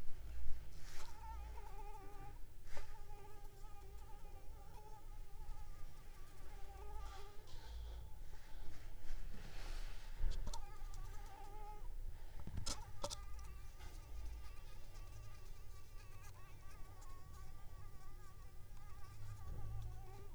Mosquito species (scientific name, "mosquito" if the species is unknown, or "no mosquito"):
Anopheles arabiensis